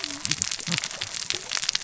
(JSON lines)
{"label": "biophony, cascading saw", "recorder": "SoundTrap 600 or HydroMoth"}